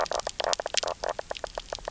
{"label": "biophony, knock croak", "recorder": "SoundTrap 300"}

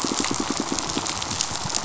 {"label": "biophony, pulse", "recorder": "SoundTrap 500"}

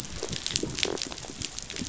{"label": "biophony, rattle response", "recorder": "SoundTrap 500"}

